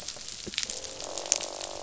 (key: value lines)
label: biophony, croak
recorder: SoundTrap 500